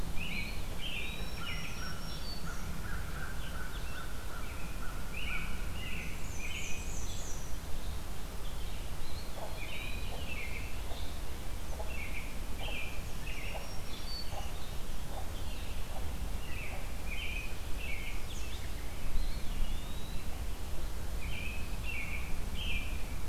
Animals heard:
Scarlet Tanager (Piranga olivacea), American Crow (Corvus brachyrhynchos), Black-throated Green Warbler (Setophaga virens), Black-and-white Warbler (Mniotilta varia), Eastern Wood-Pewee (Contopus virens), American Robin (Turdus migratorius)

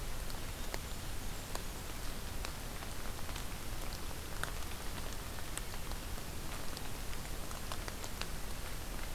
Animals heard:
Blackburnian Warbler (Setophaga fusca)

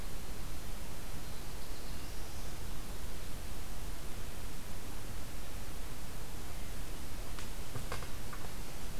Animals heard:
Black-throated Blue Warbler (Setophaga caerulescens)

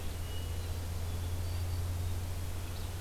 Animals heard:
Hermit Thrush (Catharus guttatus)

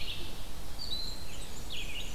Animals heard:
Black-and-white Warbler (Mniotilta varia), Red-eyed Vireo (Vireo olivaceus)

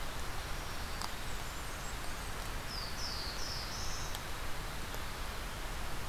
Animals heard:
Black-throated Blue Warbler (Setophaga caerulescens), Black-throated Green Warbler (Setophaga virens), Blackburnian Warbler (Setophaga fusca)

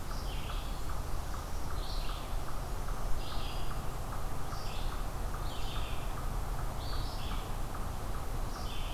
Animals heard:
Red-eyed Vireo (Vireo olivaceus), Eastern Chipmunk (Tamias striatus)

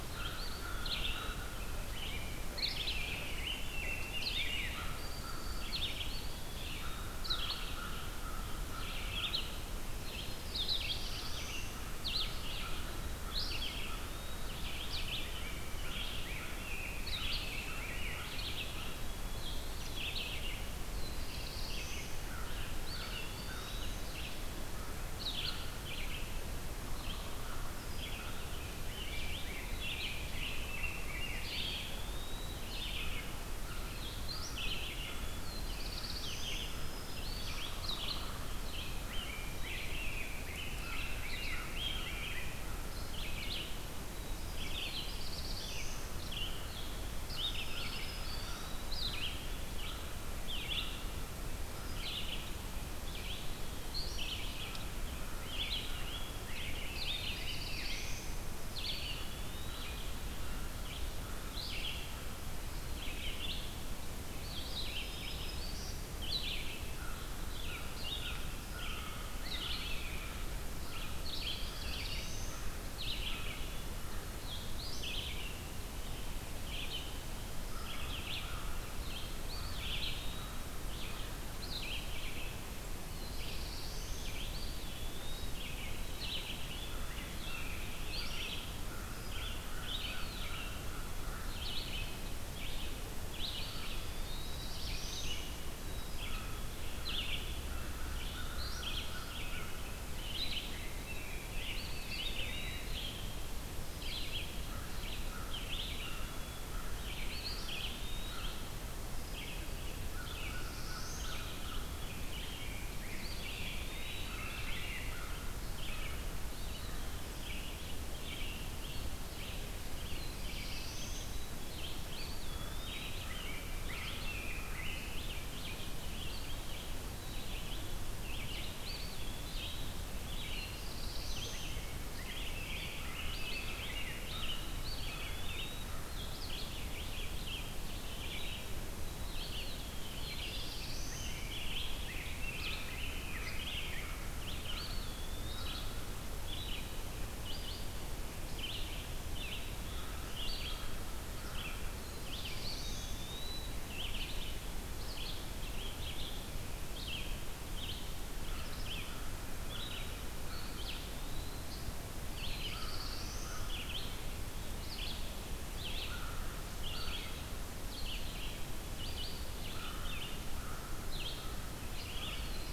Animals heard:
Downy Woodpecker (Dryobates pubescens), Black-capped Chickadee (Poecile atricapillus), Eastern Wood-Pewee (Contopus virens), Black-throated Blue Warbler (Setophaga caerulescens), Song Sparrow (Melospiza melodia), Black-throated Green Warbler (Setophaga virens), Red-eyed Vireo (Vireo olivaceus), American Crow (Corvus brachyrhynchos), Rose-breasted Grosbeak (Pheucticus ludovicianus)

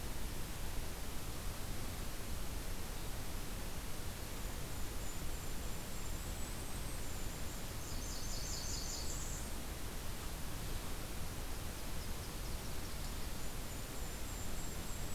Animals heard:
Nashville Warbler (Leiothlypis ruficapilla), Blackburnian Warbler (Setophaga fusca), Golden-crowned Kinglet (Regulus satrapa)

